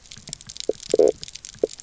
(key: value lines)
label: biophony, knock croak
recorder: SoundTrap 300